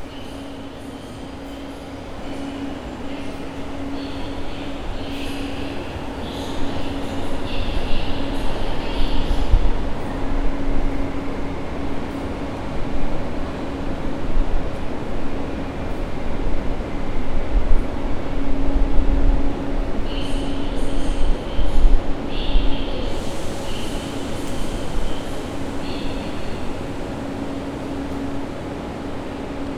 Is the noise consistent?
yes